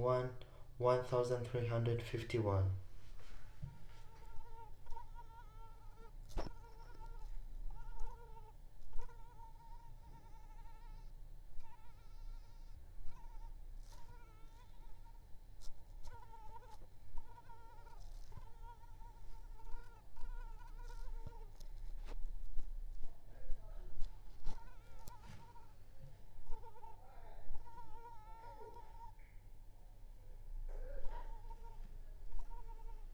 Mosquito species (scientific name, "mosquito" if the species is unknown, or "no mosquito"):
Culex pipiens complex